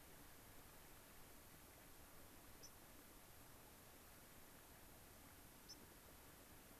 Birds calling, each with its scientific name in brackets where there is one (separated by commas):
White-crowned Sparrow (Zonotrichia leucophrys)